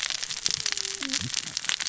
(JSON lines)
{"label": "biophony, cascading saw", "recorder": "SoundTrap 600 or HydroMoth"}